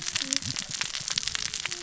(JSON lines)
{"label": "biophony, cascading saw", "recorder": "SoundTrap 600 or HydroMoth"}